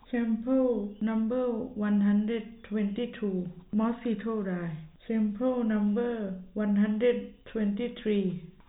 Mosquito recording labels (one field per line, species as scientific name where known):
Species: no mosquito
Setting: cup